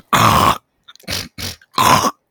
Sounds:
Throat clearing